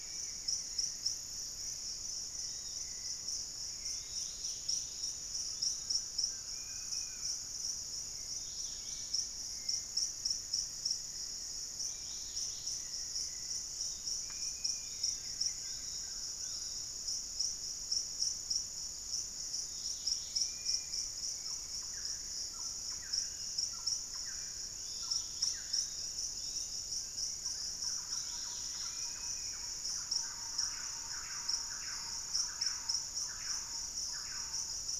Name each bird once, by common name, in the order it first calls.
unidentified bird, Hauxwell's Thrush, Yellow-margined Flycatcher, Dusky-capped Greenlet, Undulated Tinamou, Collared Trogon, Dusky-capped Flycatcher, Thrush-like Wren